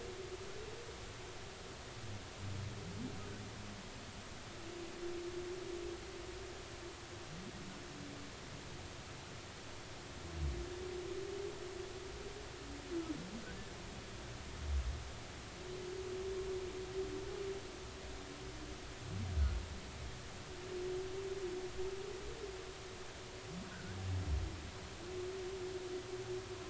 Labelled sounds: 23.7	24.0	humpback whale, 1.4 to 1.7 kHz

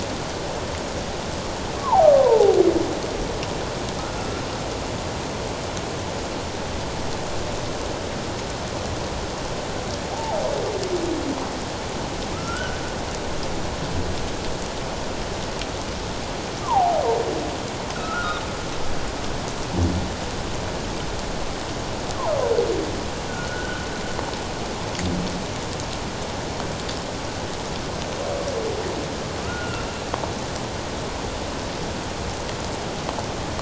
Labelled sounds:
1.8	2.6	humpback whale, 0.78 to 1.2 kHz
4.0	4.5	humpback whale, 1.2 to 1.4 kHz
10.1	10.4	humpback whale, 0.78 to 0.97 kHz
12.3	12.8	humpback whale, 1.2 to 1.6 kHz
16.6	17.0	humpback whale, 0.78 to 1.2 kHz
17.9	18.4	humpback whale, 1.2 to 1.6 kHz
23.3	23.8	humpback whale, 1.4 to 1.6 kHz
29.4	29.8	humpback whale, 1.2 to 1.5 kHz

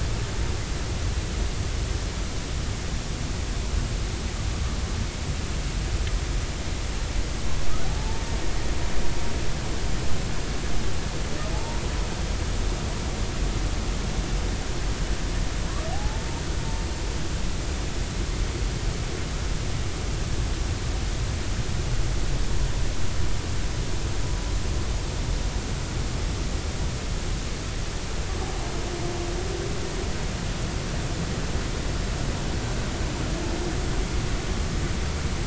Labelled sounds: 8.0	8.2	humpback whale, 0.83 to 0.93 kHz
11.5	11.8	humpback whale, 0.80 to 0.99 kHz
15.9	16.3	humpback whale, 0.80 to 0.93 kHz

